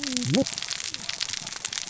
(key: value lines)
label: biophony, cascading saw
recorder: SoundTrap 600 or HydroMoth